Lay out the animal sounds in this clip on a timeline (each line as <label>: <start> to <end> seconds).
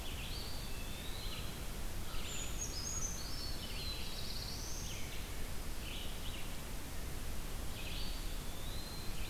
Red-eyed Vireo (Vireo olivaceus): 0.0 to 9.3 seconds
Eastern Wood-Pewee (Contopus virens): 0.1 to 1.6 seconds
American Crow (Corvus brachyrhynchos): 1.1 to 3.1 seconds
Brown Creeper (Certhia americana): 2.1 to 3.7 seconds
Black-throated Blue Warbler (Setophaga caerulescens): 3.5 to 5.1 seconds
Eastern Wood-Pewee (Contopus virens): 7.9 to 9.2 seconds